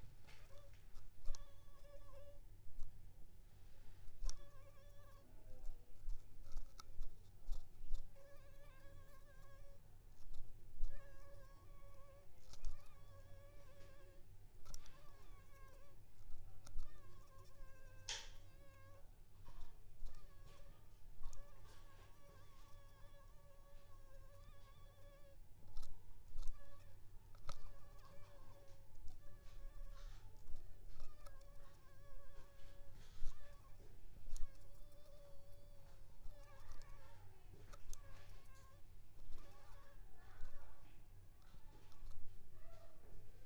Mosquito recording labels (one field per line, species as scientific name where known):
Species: Anopheles arabiensis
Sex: female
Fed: unfed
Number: one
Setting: cup